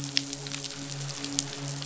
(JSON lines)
{"label": "biophony, midshipman", "recorder": "SoundTrap 500"}